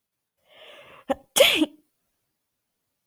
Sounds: Sneeze